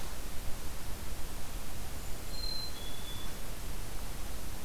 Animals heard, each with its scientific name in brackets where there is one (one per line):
Black-capped Chickadee (Poecile atricapillus)
Golden-crowned Kinglet (Regulus satrapa)